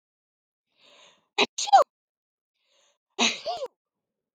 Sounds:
Sneeze